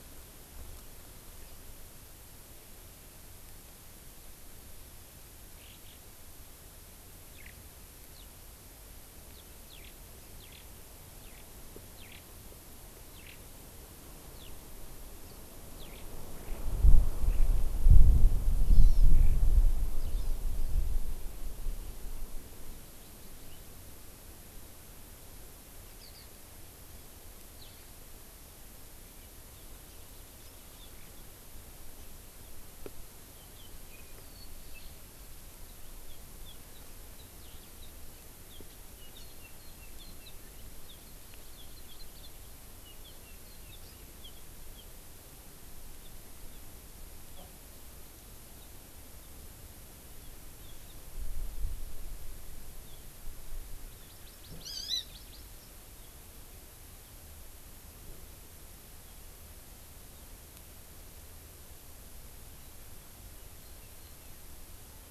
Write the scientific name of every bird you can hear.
Alauda arvensis, Chlorodrepanis virens